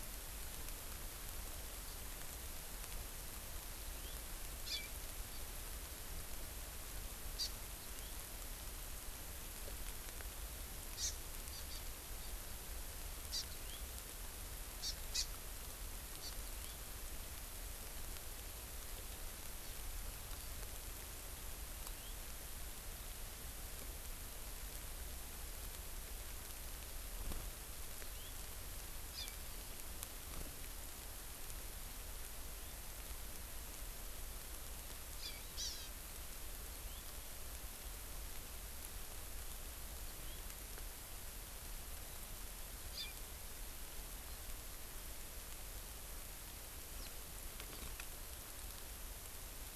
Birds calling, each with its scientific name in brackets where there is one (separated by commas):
Hawaii Amakihi (Chlorodrepanis virens), House Finch (Haemorhous mexicanus)